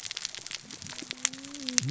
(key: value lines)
label: biophony, cascading saw
recorder: SoundTrap 600 or HydroMoth